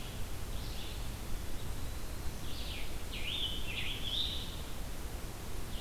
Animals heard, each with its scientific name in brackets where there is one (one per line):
Scarlet Tanager (Piranga olivacea)
Blue-headed Vireo (Vireo solitarius)